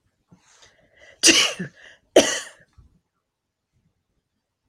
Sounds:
Sneeze